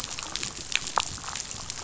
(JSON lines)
{"label": "biophony, damselfish", "recorder": "SoundTrap 500"}